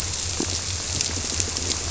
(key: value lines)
label: biophony
recorder: SoundTrap 300